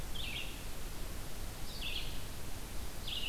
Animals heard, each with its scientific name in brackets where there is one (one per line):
Red-eyed Vireo (Vireo olivaceus)